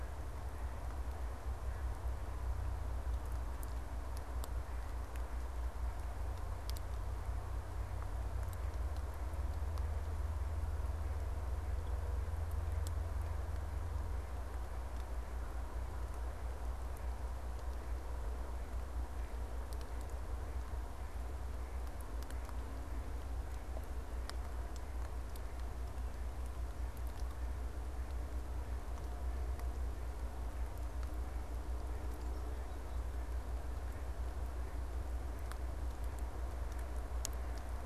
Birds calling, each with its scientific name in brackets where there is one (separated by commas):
Black-capped Chickadee (Poecile atricapillus), Mallard (Anas platyrhynchos)